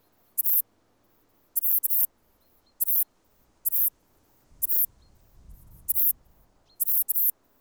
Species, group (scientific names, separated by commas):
Ephippiger diurnus, Orthoptera